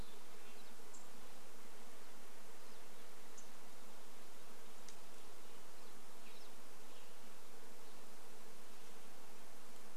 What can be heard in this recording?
Red-breasted Nuthatch song, Western Wood-Pewee song, unidentified bird chip note, unidentified sound, insect buzz, Western Tanager song